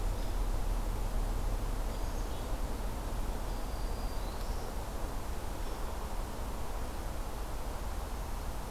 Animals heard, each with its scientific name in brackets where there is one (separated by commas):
Black-capped Chickadee (Poecile atricapillus), Black-throated Green Warbler (Setophaga virens), Hairy Woodpecker (Dryobates villosus)